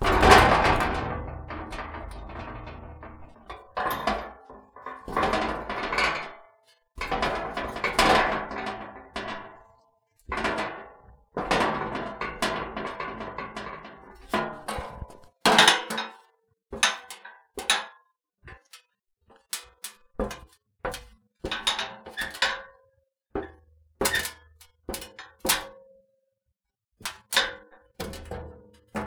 Are these paper objects?
no